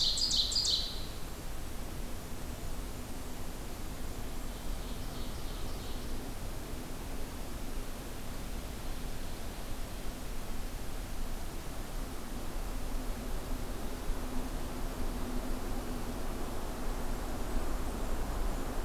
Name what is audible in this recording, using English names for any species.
Ovenbird